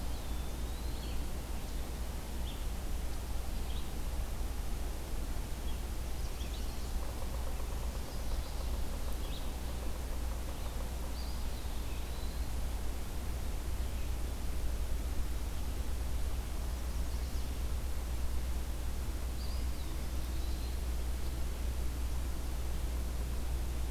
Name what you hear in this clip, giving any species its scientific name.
Contopus virens, Vireo olivaceus, Setophaga pensylvanica, Sphyrapicus varius